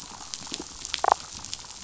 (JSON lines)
{"label": "biophony, damselfish", "recorder": "SoundTrap 500"}